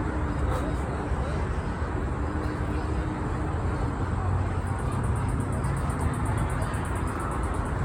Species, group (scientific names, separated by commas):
Microcentrum rhombifolium, Orthoptera